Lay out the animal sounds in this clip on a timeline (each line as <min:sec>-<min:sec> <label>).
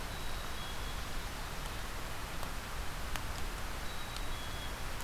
0:00.0-0:01.2 Black-capped Chickadee (Poecile atricapillus)
0:03.7-0:05.0 Black-capped Chickadee (Poecile atricapillus)